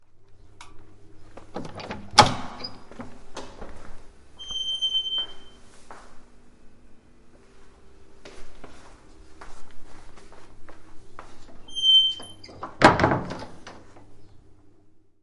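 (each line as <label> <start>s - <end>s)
A mechanical wooden door is opening. 1.6s - 4.1s
A door creaks. 4.5s - 5.4s
Rhythmic and steady footsteps with a soft to moderate impact. 5.9s - 6.3s
Rhythmic and steady footsteps with a soft to moderate impact. 8.2s - 11.7s
A door creaks. 11.7s - 12.2s
The wooden door claps shut. 12.8s - 13.9s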